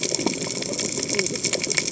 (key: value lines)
label: biophony, cascading saw
recorder: HydroMoth